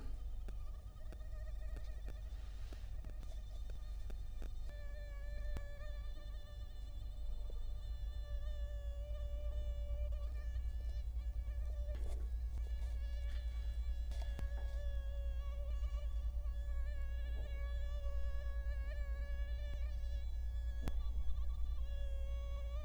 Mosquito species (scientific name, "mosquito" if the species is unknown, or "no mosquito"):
Culex quinquefasciatus